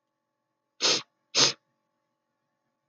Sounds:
Sniff